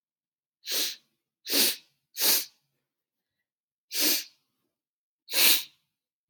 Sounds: Sniff